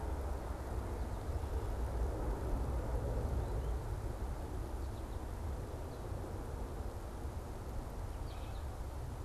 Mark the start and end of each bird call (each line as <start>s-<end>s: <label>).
8.2s-8.8s: American Goldfinch (Spinus tristis)